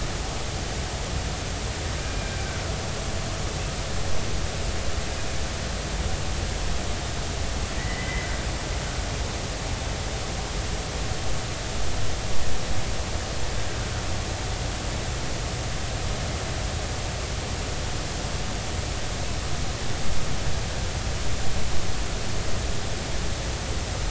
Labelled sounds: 7.8	8.3	killer whale, Bigg's (transient), 1.8 to 2.1 kHz

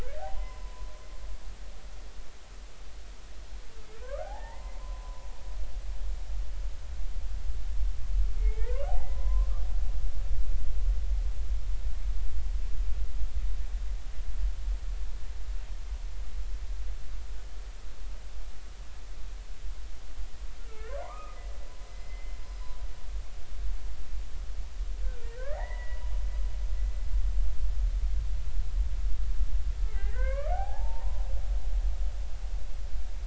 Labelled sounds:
0.3	0.9	humpback whale, 0.93 to 5.2 kHz
4.0	5.3	humpback whale, 0.80 to 2.1 kHz
8.4	9.5	humpback whale, 0.80 to 2.3 kHz
20.7	21.4	humpback whale, 0.93 to 2.6 kHz
21.9	22.7	humpback whale, 2.0 to 5.2 kHz
25.0	26.0	humpback whale, 0.80 to 2.1 kHz
29.9	31.2	humpback whale, 0.80 to 2.4 kHz

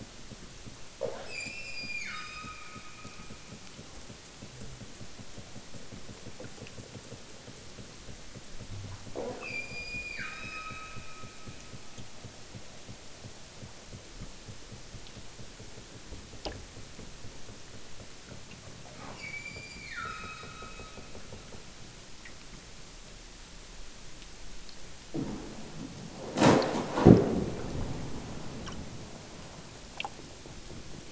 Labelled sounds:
1.2	3.6	killer whale, southern Alaska resident, 0.92 to 8.0 kHz
9.4	11.8	killer whale, southern Alaska resident, 0.96 to 8.0 kHz
19.1	21.2	killer whale, southern Alaska resident, 0.87 to 7.7 kHz

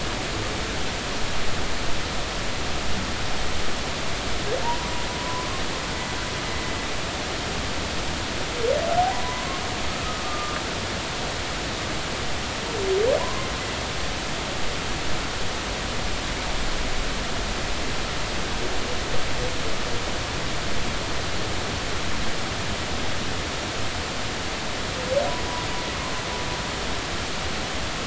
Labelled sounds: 4.6	5.6	humpback whale, 0.86 to 1.1 kHz
9.1	10.6	humpback whale, 0.93 to 1.4 kHz
13.2	13.5	humpback whale, 0.93 to 1.1 kHz

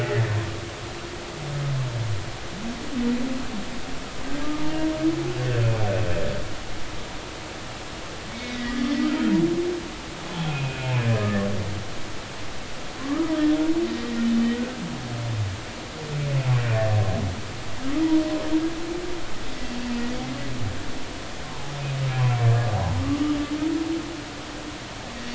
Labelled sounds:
8.3	8.8	humpback whale, 1.9 to 2.3 kHz
10.5	11.5	humpback whale, 1.6 to 2.8 kHz
13.0	13.3	humpback whale, 0.99 to 1.3 kHz
14.5	14.8	humpback whale, 1.4 to 1.6 kHz
21.4	21.7	humpback whale, 0.80 to 1.2 kHz

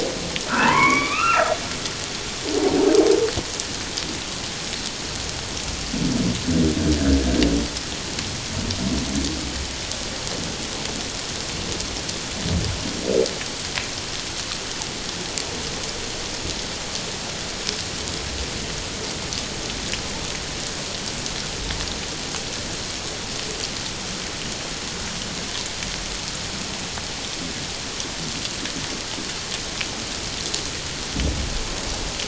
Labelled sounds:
0.5	1.5	humpback whale, 0.84 to 2.8 kHz

